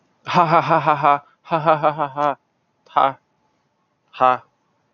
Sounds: Laughter